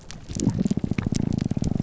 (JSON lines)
{"label": "biophony, grouper groan", "recorder": "SoundTrap 300"}